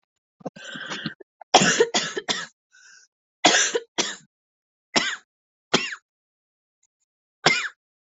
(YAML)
expert_labels:
- quality: ok
  cough_type: dry
  dyspnea: false
  wheezing: false
  stridor: false
  choking: false
  congestion: false
  nothing: true
  diagnosis: COVID-19
  severity: severe
age: 46
gender: female
respiratory_condition: false
fever_muscle_pain: true
status: symptomatic